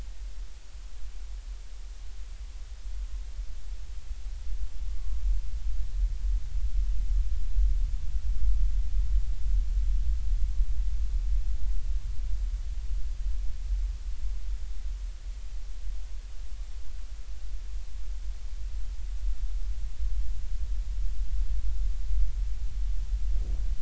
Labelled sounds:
5.0	5.2	humpback whale, 1.0 to 1.2 kHz

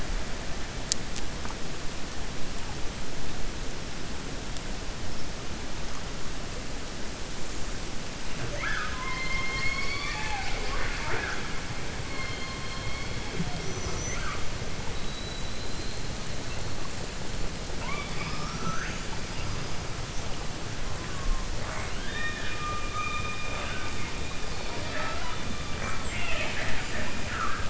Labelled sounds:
14.9	16.0	killer whale, 3.8 to 4.2 kHz
24.6	25.4	killer whale, 0.46 to 4.8 kHz
25.7	27.6	killer whale, 0.55 to 4.1 kHz

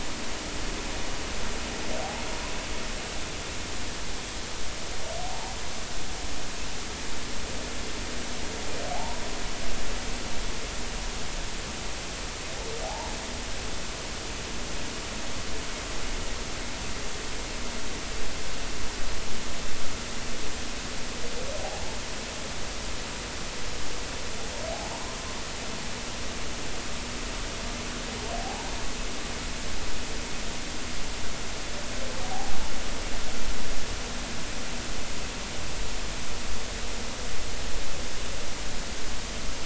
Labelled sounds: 5.3	5.5	humpback whale, 0.80 to 1.0 kHz
8.9	9.2	humpback whale, 0.80 to 1.0 kHz
12.8	13.1	humpback whale, 0.80 to 1.0 kHz
21.6	22.0	humpback whale, 0.80 to 0.93 kHz
28.3	28.7	humpback whale, 0.80 to 0.99 kHz

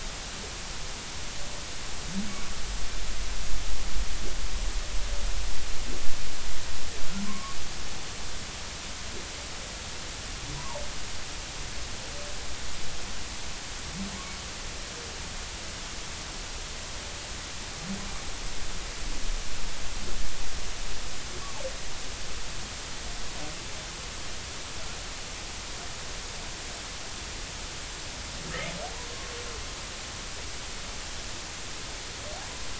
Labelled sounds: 7.3	7.6	humpback whale, 0.99 to 1.2 kHz
10.5	10.8	humpback whale, 0.80 to 1.2 kHz
28.5	28.7	humpback whale, 1.6 to 2.2 kHz

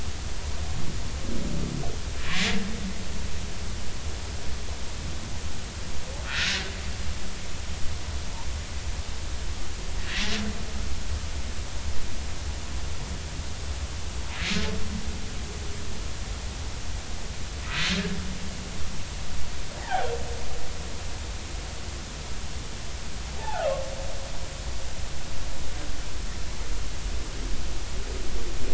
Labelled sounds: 6.2	6.6	humpback whale, 1.2 to 1.9 kHz
19.8	20.1	humpback whale, 0.80 to 2.0 kHz
23.4	23.7	humpback whale, 0.80 to 0.93 kHz

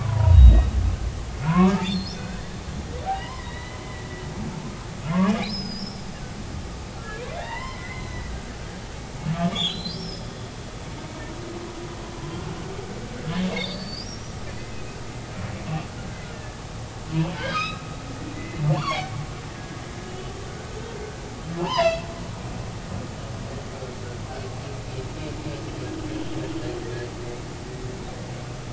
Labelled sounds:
0.0	0.7	humpback whale, 0.90 to 3.9 kHz
1.5	4.1	humpback whale, 0.90 to 4.4 kHz
5.5	6.0	humpback whale, 4.9 to 5.5 kHz
7.0	8.3	humpback whale, 0.80 to 4.1 kHz
9.5	10.3	humpback whale, 3.0 to 8.0 kHz
13.2	14.4	humpback whale, 1.6 to 5.9 kHz
16.3	17.8	humpback whale, 1.2 to 5.2 kHz
18.3	19.8	humpback whale, 1.5 to 4.6 kHz
20.1	20.7	humpback whale, 1.4 to 3.1 kHz
21.6	22.0	humpback whale, 0.83 to 5.3 kHz

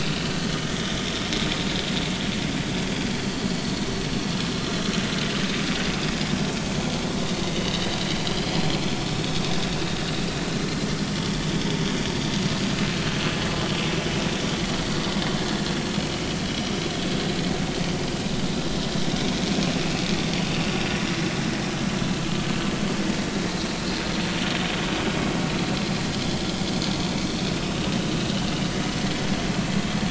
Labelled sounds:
3.5	3.7	vessel noise, 4.3 to 4.6 kHz
8.3	8.7	vessel noise, 3.0 to 4.3 kHz

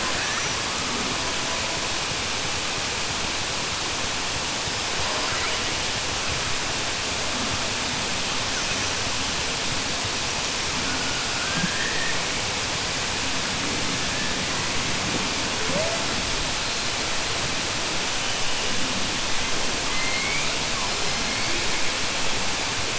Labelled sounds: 19.8	20.5	killer whale, southern resident, 1.2 to 2.4 kHz

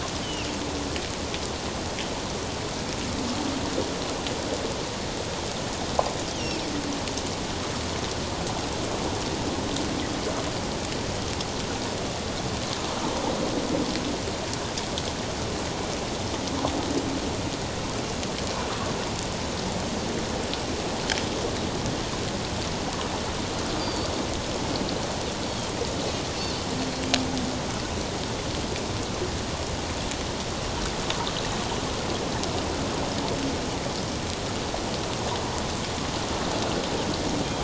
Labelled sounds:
23.8	24.1	Pacific white-sided dolphin, 4.4 to 4.9 kHz
26.8	27.1	Pacific white-sided dolphin, 4.2 to 4.4 kHz

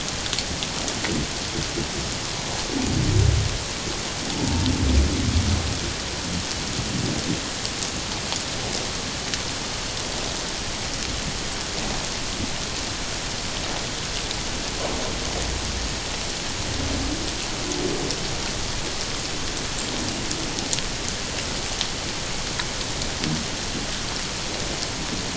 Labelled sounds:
4.4	4.7	humpback whale, 0.84 to 0.97 kHz

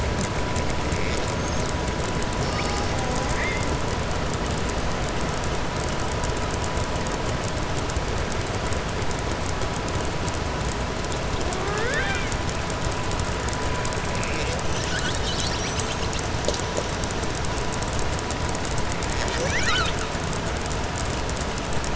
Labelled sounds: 11.4	12.3	killer whale, southern resident, 0.39 to 3.9 kHz

